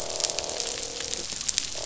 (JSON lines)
{"label": "biophony, croak", "recorder": "SoundTrap 500"}